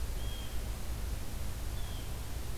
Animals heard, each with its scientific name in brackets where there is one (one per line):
Blue Jay (Cyanocitta cristata)